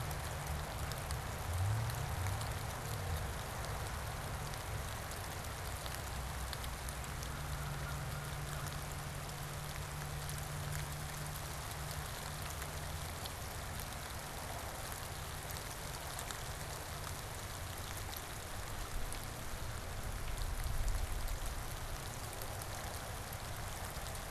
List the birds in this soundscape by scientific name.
Corvus brachyrhynchos